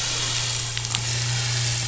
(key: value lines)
label: anthrophony, boat engine
recorder: SoundTrap 500